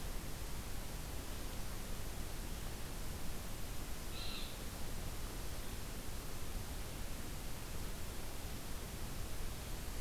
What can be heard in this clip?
unidentified call